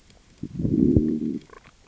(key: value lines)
label: biophony, growl
recorder: SoundTrap 600 or HydroMoth